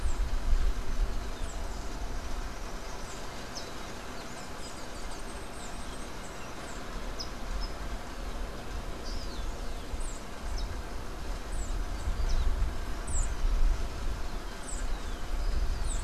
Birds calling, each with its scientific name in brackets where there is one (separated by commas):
unidentified bird